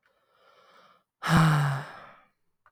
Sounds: Sigh